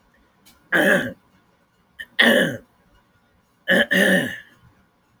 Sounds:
Throat clearing